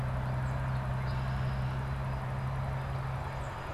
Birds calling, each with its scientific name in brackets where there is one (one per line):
Red-winged Blackbird (Agelaius phoeniceus)